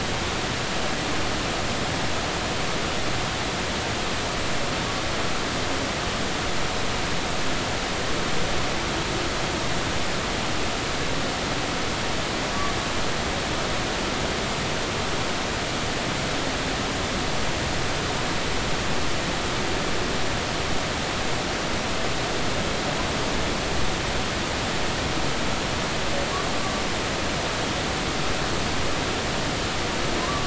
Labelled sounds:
30.2	30.4	humpback whale, 0.99 to 1.2 kHz

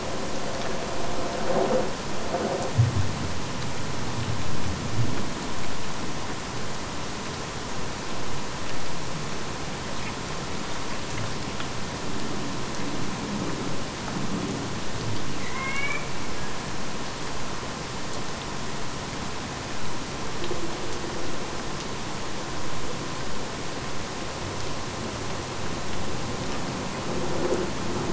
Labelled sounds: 15.4	16.2	killer whale, Bigg's (transient), AT1 transient, 0.86 to 4.4 kHz

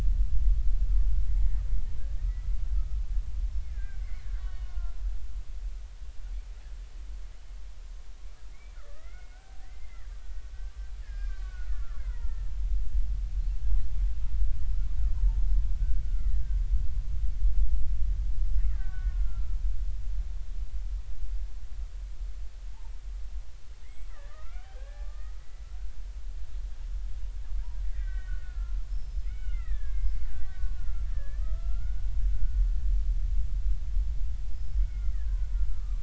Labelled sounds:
2.2	2.6	killer whale, Bigg's (transient), 1.8 to 2.1 kHz
3.7	5.0	killer whale, Bigg's (transient), 0.96 to 3.8 kHz
8.9	10.1	killer whale, Bigg's (transient), 0.80 to 2.2 kHz
11.0	12.5	killer whale, Bigg's (transient), 0.86 to 5.2 kHz
16.0	16.6	killer whale, Bigg's (transient), 1.2 to 2.1 kHz
18.6	19.6	killer whale, Bigg's (transient), 0.96 to 2.4 kHz
23.8	25.9	killer whale, Bigg's (transient), 1.1 to 3.3 kHz
27.9	32.0	killer whale, Bigg's (transient), 1.2 to 5.4 kHz
32.3	32.6	killer whale, Bigg's (transient), 1.4 to 1.5 kHz
34.5	36.0	killer whale, Bigg's (transient), 1.1 to 5.3 kHz

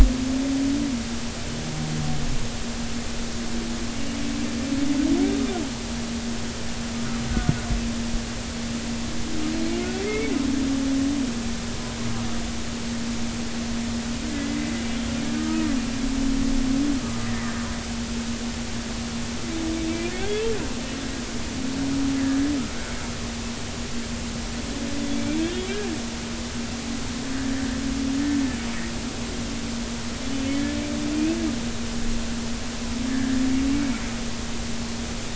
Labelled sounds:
4.0	4.2	humpback whale, 2.7 to 3.0 kHz
7.3	7.5	humpback whale, 1.4 to 1.5 kHz
10.0	10.3	humpback whale, 1.9 to 2.3 kHz
14.3	14.7	humpback whale, 1.9 to 2.1 kHz
15.4	15.7	humpback whale, 1.2 to 1.3 kHz
25.5	25.8	humpback whale, 2.7 to 3.3 kHz
30.3	30.6	humpback whale, 2.9 to 3.1 kHz
33.1	33.4	humpback whale, 1.6 to 1.9 kHz

